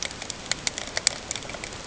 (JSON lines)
{"label": "ambient", "recorder": "HydroMoth"}